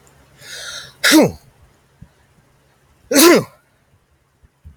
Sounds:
Sneeze